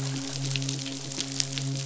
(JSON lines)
{"label": "biophony, midshipman", "recorder": "SoundTrap 500"}